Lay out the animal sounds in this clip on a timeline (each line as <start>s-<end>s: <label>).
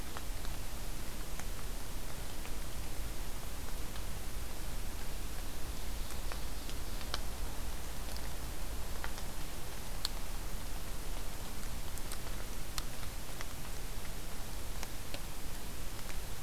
5.5s-7.2s: Ovenbird (Seiurus aurocapilla)